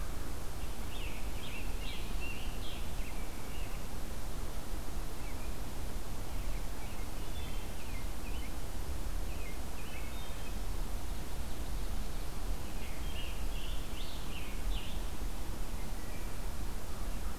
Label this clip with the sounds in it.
Scarlet Tanager, American Robin, Wood Thrush, Ovenbird